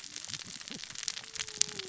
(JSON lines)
{"label": "biophony, cascading saw", "recorder": "SoundTrap 600 or HydroMoth"}